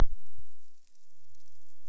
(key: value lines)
label: biophony
recorder: SoundTrap 300